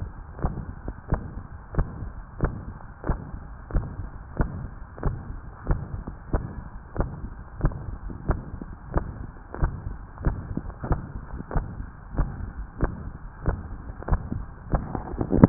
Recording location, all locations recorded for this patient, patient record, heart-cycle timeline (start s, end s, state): tricuspid valve (TV)
aortic valve (AV)+pulmonary valve (PV)+tricuspid valve (TV)+mitral valve (MV)
#Age: Child
#Sex: Female
#Height: 149.0 cm
#Weight: 33.9 kg
#Pregnancy status: False
#Murmur: Present
#Murmur locations: aortic valve (AV)+mitral valve (MV)+pulmonary valve (PV)+tricuspid valve (TV)
#Most audible location: tricuspid valve (TV)
#Systolic murmur timing: Holosystolic
#Systolic murmur shape: Plateau
#Systolic murmur grading: III/VI or higher
#Systolic murmur pitch: Medium
#Systolic murmur quality: Blowing
#Diastolic murmur timing: nan
#Diastolic murmur shape: nan
#Diastolic murmur grading: nan
#Diastolic murmur pitch: nan
#Diastolic murmur quality: nan
#Outcome: Abnormal
#Campaign: 2015 screening campaign
0.00	1.08	unannotated
1.08	1.24	S1
1.24	1.34	systole
1.34	1.44	S2
1.44	1.76	diastole
1.76	1.88	S1
1.88	2.00	systole
2.00	2.12	S2
2.12	2.40	diastole
2.40	2.54	S1
2.54	2.66	systole
2.66	2.74	S2
2.74	3.06	diastole
3.06	3.20	S1
3.20	3.30	systole
3.30	3.40	S2
3.40	3.72	diastole
3.72	3.90	S1
3.90	4.00	systole
4.00	4.10	S2
4.10	4.36	diastole
4.36	4.49	S1
4.49	4.60	systole
4.60	4.70	S2
4.70	5.02	diastole
5.02	5.14	S1
5.14	5.27	systole
5.27	5.40	S2
5.40	5.66	diastole
5.66	5.82	S1
5.82	5.92	systole
5.92	6.04	S2
6.04	6.30	diastole
6.30	6.46	S1
6.46	6.55	systole
6.55	6.64	S2
6.64	6.98	diastole
6.98	7.12	S1
7.12	7.22	systole
7.22	7.30	S2
7.30	7.62	diastole
7.62	7.76	S1
7.76	7.86	systole
7.86	7.98	S2
7.98	8.26	diastole
8.26	8.39	S1
8.39	8.50	systole
8.50	8.58	S2
8.58	8.92	diastole
8.92	9.05	S1
9.05	9.18	systole
9.18	9.28	S2
9.28	9.60	diastole
9.60	9.74	S1
9.74	9.84	systole
9.84	9.96	S2
9.96	10.22	diastole
10.22	10.36	S1
10.36	10.48	systole
10.48	10.62	S2
10.62	10.86	diastole
10.86	10.99	S1
10.99	11.12	systole
11.12	11.22	S2
11.22	11.52	diastole
11.52	11.64	S1
11.64	11.76	systole
11.76	11.86	S2
11.86	12.16	diastole
12.16	12.29	S1
12.29	12.38	systole
12.38	12.50	S2
12.50	12.80	diastole
12.80	12.93	S1
12.93	13.03	systole
13.03	13.14	S2
13.14	13.43	diastole
13.43	13.55	S1
13.55	13.68	systole
13.68	13.78	S2
13.78	14.07	diastole
14.07	14.21	S1
14.21	14.32	systole
14.32	14.46	S2
14.46	14.69	diastole
14.69	14.83	S1
14.83	15.49	unannotated